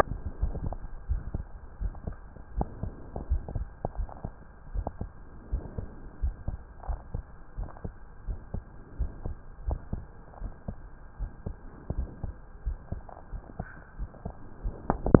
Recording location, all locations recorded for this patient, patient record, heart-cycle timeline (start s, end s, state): aortic valve (AV)
aortic valve (AV)+pulmonary valve (PV)+tricuspid valve (TV)+mitral valve (MV)
#Age: Adolescent
#Sex: Male
#Height: 166.0 cm
#Weight: 71.3 kg
#Pregnancy status: False
#Murmur: Absent
#Murmur locations: nan
#Most audible location: nan
#Systolic murmur timing: nan
#Systolic murmur shape: nan
#Systolic murmur grading: nan
#Systolic murmur pitch: nan
#Systolic murmur quality: nan
#Diastolic murmur timing: nan
#Diastolic murmur shape: nan
#Diastolic murmur grading: nan
#Diastolic murmur pitch: nan
#Diastolic murmur quality: nan
#Outcome: Normal
#Campaign: 2015 screening campaign
0.00	1.08	unannotated
1.08	1.24	S1
1.24	1.32	systole
1.32	1.46	S2
1.46	1.80	diastole
1.80	1.94	S1
1.94	2.06	systole
2.06	2.18	S2
2.18	2.54	diastole
2.54	2.68	S1
2.68	2.80	systole
2.80	2.94	S2
2.94	3.30	diastole
3.30	3.46	S1
3.46	3.52	systole
3.52	3.68	S2
3.68	3.96	diastole
3.96	4.10	S1
4.10	4.24	systole
4.24	4.34	S2
4.34	4.72	diastole
4.72	4.84	S1
4.84	4.99	systole
4.99	5.10	S2
5.10	5.50	diastole
5.50	5.64	S1
5.64	5.75	systole
5.75	5.88	S2
5.88	6.20	diastole
6.20	6.34	S1
6.34	6.46	systole
6.46	6.58	S2
6.58	6.86	diastole
6.86	7.00	S1
7.00	7.12	systole
7.12	7.24	S2
7.24	7.58	diastole
7.58	7.70	S1
7.70	7.84	systole
7.84	7.94	S2
7.94	8.26	diastole
8.26	8.40	S1
8.40	8.52	systole
8.52	8.64	S2
8.64	8.98	diastole
8.98	9.12	S1
9.12	9.26	systole
9.26	9.38	S2
9.38	9.66	diastole
9.66	9.80	S1
9.80	9.92	systole
9.92	10.04	S2
10.04	10.40	diastole
10.40	10.52	S1
10.52	10.68	systole
10.68	10.80	S2
10.80	11.20	diastole
11.20	11.30	S1
11.30	11.46	systole
11.46	11.56	S2
11.56	11.94	diastole
11.94	12.10	S1
12.10	12.22	systole
12.22	12.34	S2
12.34	12.64	diastole
12.64	12.78	S1
12.78	12.90	systole
12.90	13.02	S2
13.02	13.30	diastole
13.30	13.42	S1
13.42	13.56	systole
13.56	13.66	S2
13.66	13.96	diastole
13.96	14.10	S1
14.10	14.21	systole
14.21	14.34	S2
14.34	14.60	diastole
14.60	14.76	S1
14.76	15.20	unannotated